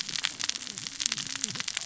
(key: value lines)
label: biophony, cascading saw
recorder: SoundTrap 600 or HydroMoth